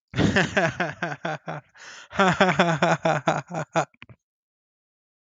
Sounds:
Laughter